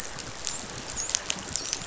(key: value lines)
label: biophony, dolphin
recorder: SoundTrap 500